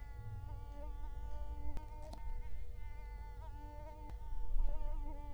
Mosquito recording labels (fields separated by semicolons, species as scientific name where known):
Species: Culex quinquefasciatus; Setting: cup